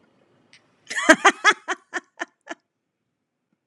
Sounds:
Laughter